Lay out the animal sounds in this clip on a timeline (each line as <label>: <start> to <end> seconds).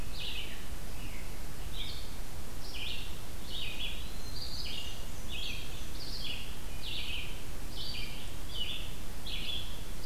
Red-eyed Vireo (Vireo olivaceus): 0.0 to 4.0 seconds
Eastern Wood-Pewee (Contopus virens): 3.4 to 4.5 seconds
Black-and-white Warbler (Mniotilta varia): 4.0 to 5.7 seconds
Red-eyed Vireo (Vireo olivaceus): 4.3 to 10.1 seconds